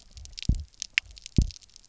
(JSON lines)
{"label": "biophony, double pulse", "recorder": "SoundTrap 300"}